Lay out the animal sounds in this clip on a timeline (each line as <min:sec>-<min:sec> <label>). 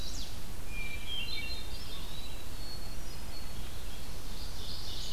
0:00.0-0:05.1 Red-eyed Vireo (Vireo olivaceus)
0:00.7-0:03.6 Hermit Thrush (Catharus guttatus)
0:01.8-0:02.6 Eastern Wood-Pewee (Contopus virens)
0:03.9-0:05.1 Ovenbird (Seiurus aurocapilla)